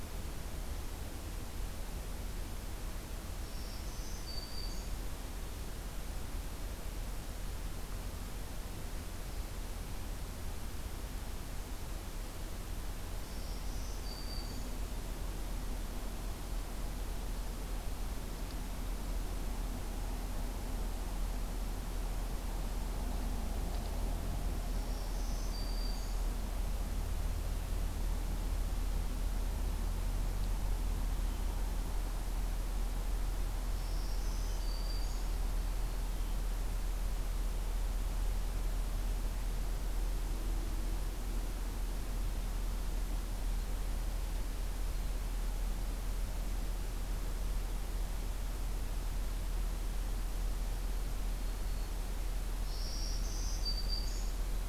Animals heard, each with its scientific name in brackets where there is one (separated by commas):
Black-throated Green Warbler (Setophaga virens), Blue Jay (Cyanocitta cristata)